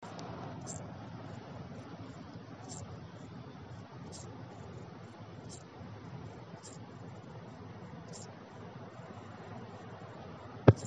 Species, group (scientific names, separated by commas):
Eupholidoptera schmidti, Orthoptera